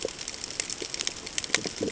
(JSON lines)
{"label": "ambient", "recorder": "HydroMoth"}